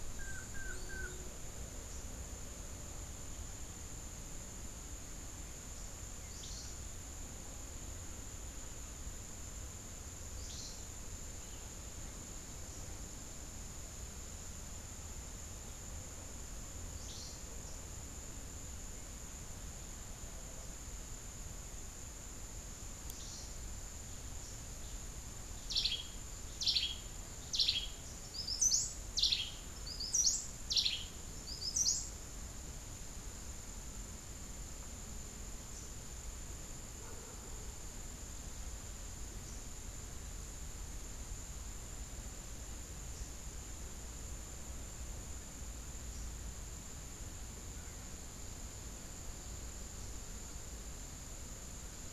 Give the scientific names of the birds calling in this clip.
Psilorhinus morio, Cantorchilus modestus